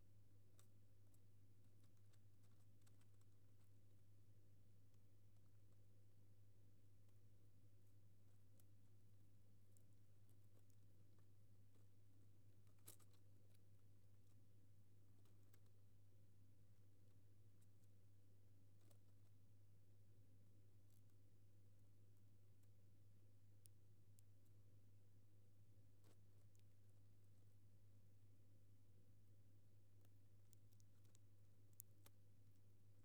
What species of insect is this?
Neocallicrania miegii